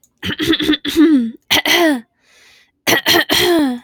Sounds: Throat clearing